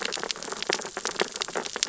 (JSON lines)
{"label": "biophony, sea urchins (Echinidae)", "recorder": "SoundTrap 600 or HydroMoth"}